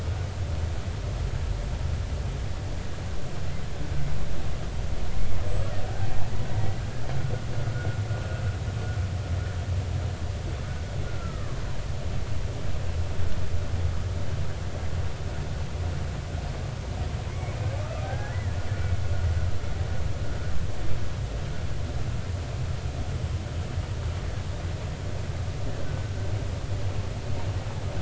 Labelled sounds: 5.8	6.1	killer whale, 1.4 to 1.6 kHz
11.1	11.6	killer whale, 1.0 to 2.0 kHz
17.3	18.6	killer whale, 0.80 to 2.3 kHz
25.8	26.1	killer whale, 1.4 to 1.6 kHz

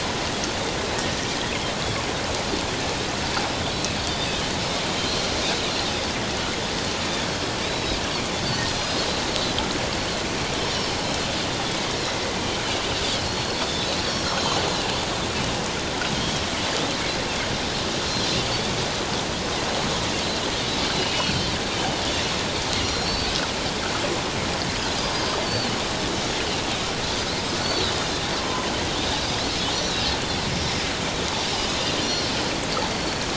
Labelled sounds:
4.1	4.4	Pacific white-sided dolphin, 3.5 to 3.8 kHz
7.6	8.0	Pacific white-sided dolphin, 3.7 to 4.0 kHz
8.7	9.0	Pacific white-sided dolphin, 4.9 to 5.1 kHz
10.6	11.8	Pacific white-sided dolphin, 3.3 to 5.7 kHz
13.2	13.9	Pacific white-sided dolphin, 3.4 to 5.3 kHz
16.1	16.4	Pacific white-sided dolphin, 3.1 to 3.4 kHz
21.0	21.4	Pacific white-sided dolphin, 2.3 to 3.0 kHz
22.8	23.3	Pacific white-sided dolphin, 3.9 to 5.8 kHz
25.4	25.7	Pacific white-sided dolphin, 4.4 to 4.7 kHz
27.6	28.7	Pacific white-sided dolphin, 0.97 to 4.6 kHz
29.8	30.1	Pacific white-sided dolphin, 3.7 to 4.0 kHz
32.0	33.2	Pacific white-sided dolphin, 4.2 to 4.5 kHz

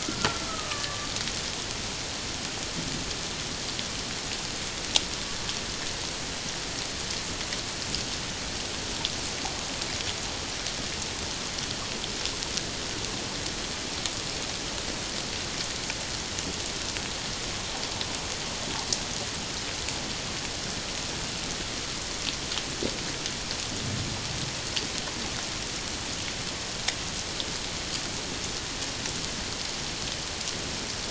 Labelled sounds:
0.0	1.1	killer whale, Bigg's (transient), 1.0 to 1.8 kHz

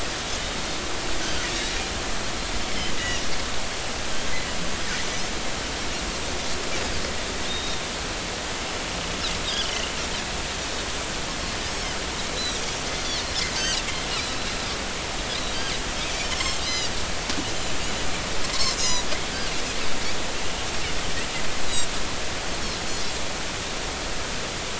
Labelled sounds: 0.4	0.7	Pacific white-sided dolphin, 3.6 to 3.8 kHz
2.5	2.8	Pacific white-sided dolphin, 3.4 to 3.9 kHz
7.5	7.9	Pacific white-sided dolphin, 3.6 to 3.8 kHz
9.5	9.9	Pacific white-sided dolphin, 2.7 to 3.5 kHz
13.5	13.8	Pacific white-sided dolphin, 2.6 to 5.9 kHz
16.6	16.9	Pacific white-sided dolphin, 3.7 to 5.2 kHz
18.8	19.1	Pacific white-sided dolphin, 4.7 to 7.2 kHz

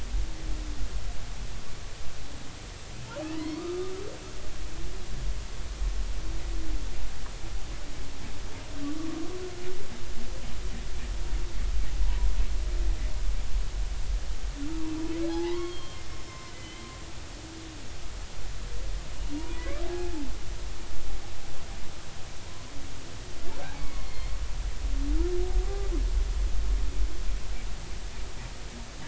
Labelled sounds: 3.2	3.9	humpback whale, 1.1 to 4.6 kHz
15.2	16.9	humpback whale, 0.80 to 5.5 kHz
19.3	19.7	humpback whale, 0.93 to 1.0 kHz
20.8	21.1	humpback whale, 0.80 to 0.86 kHz
23.7	24.4	humpback whale, 2.0 to 4.5 kHz

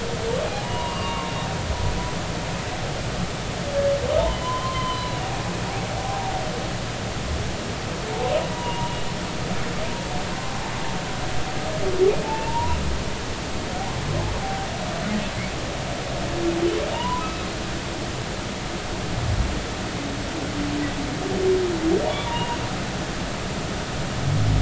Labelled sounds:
0.5	1.3	humpback whale, 0.80 to 2.9 kHz
4.3	5.2	humpback whale, 0.93 to 4.1 kHz
8.5	9.0	humpback whale, 0.90 to 1.0 kHz
12.2	12.8	humpback whale, 0.80 to 1.1 kHz
16.9	17.5	humpback whale, 0.86 to 3.0 kHz
22.2	22.6	humpback whale, 0.90 to 2.9 kHz

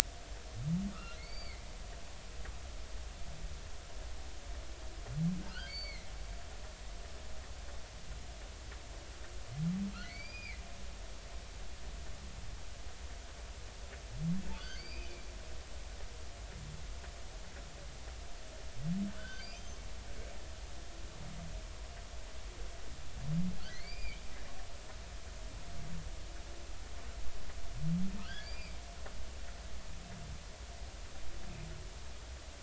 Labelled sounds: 0.9	1.6	humpback whale, 1.1 to 4.8 kHz
5.5	6.1	humpback whale, 2.0 to 4.6 kHz
9.9	10.6	humpback whale, 1.9 to 5.0 kHz
14.6	15.2	humpback whale, 1.4 to 5.0 kHz
19.1	19.8	humpback whale, 1.3 to 6.4 kHz
23.7	24.2	humpback whale, 1.9 to 4.9 kHz
28.2	28.8	humpback whale, 1.4 to 5.0 kHz

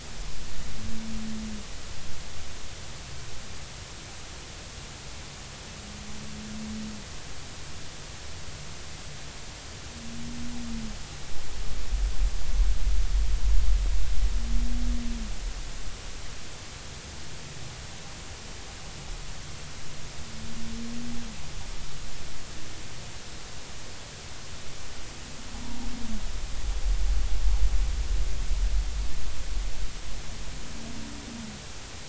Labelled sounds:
25.6	25.9	humpback whale, 0.80 to 0.99 kHz

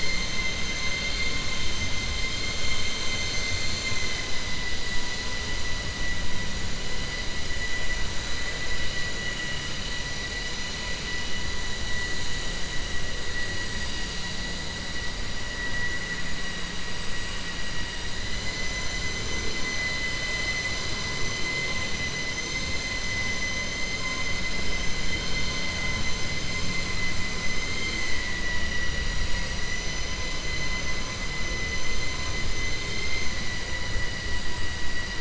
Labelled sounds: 28.6	30.1	vessel noise, 4.8 to 7.7 kHz
32.5	33.3	vessel noise, 2.0 to 7.2 kHz

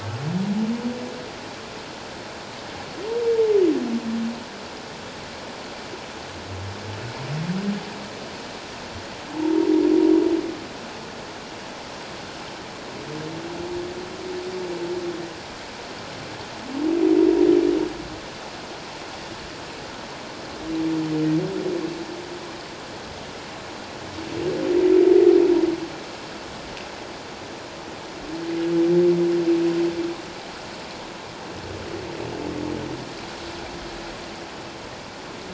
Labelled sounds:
9.4	9.7	humpback whale, 0.84 to 1.0 kHz

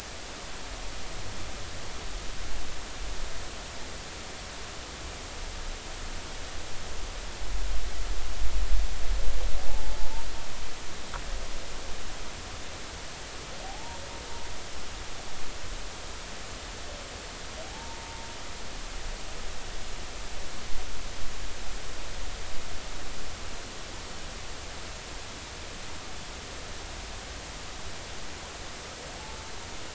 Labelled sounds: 9.7	10.0	humpback whale, 0.80 to 0.93 kHz
13.6	14.0	humpback whale, 0.80 to 0.99 kHz
17.7	18.2	humpback whale, 0.80 to 0.99 kHz

